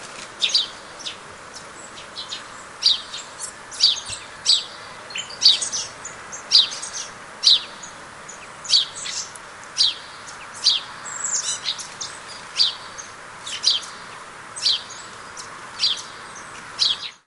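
0.1s A bird chirps repeatedly outdoors. 17.3s

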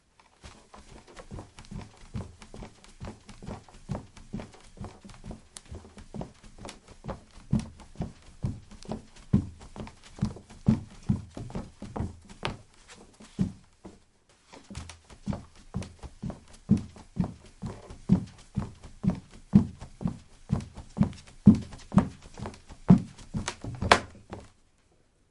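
0.0s Footsteps of a person running on a wooden floor. 25.3s

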